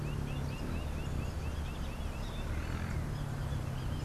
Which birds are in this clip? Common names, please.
Lineated Woodpecker